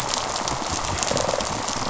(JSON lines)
{"label": "biophony, rattle response", "recorder": "SoundTrap 500"}